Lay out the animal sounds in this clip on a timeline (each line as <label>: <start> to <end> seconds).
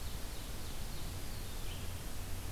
Ovenbird (Seiurus aurocapilla): 0.0 to 1.5 seconds
Red-eyed Vireo (Vireo olivaceus): 0.0 to 1.9 seconds
Eastern Wood-Pewee (Contopus virens): 0.9 to 1.8 seconds